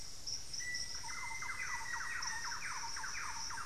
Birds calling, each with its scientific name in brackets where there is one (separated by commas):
Black-faced Antthrush (Formicarius analis), unidentified bird, Hauxwell's Thrush (Turdus hauxwelli), Buff-breasted Wren (Cantorchilus leucotis), Thrush-like Wren (Campylorhynchus turdinus)